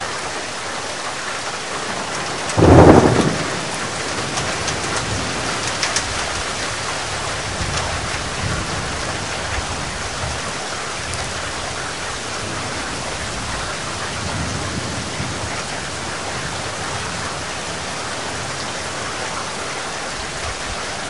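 0.0s Rain falling. 21.1s
2.5s Thunder rumbles. 3.4s

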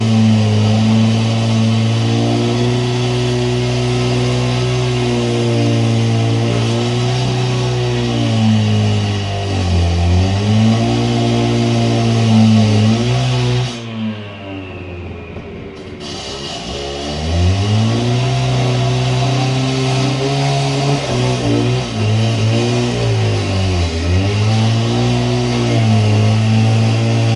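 0.0s An engine revving irregularly. 13.9s
13.8s An engine revving down slowly. 16.0s
15.9s An engine revving irregularly. 27.4s

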